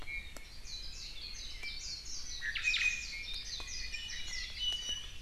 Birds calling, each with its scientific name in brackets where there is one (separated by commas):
Warbling White-eye (Zosterops japonicus), Iiwi (Drepanis coccinea)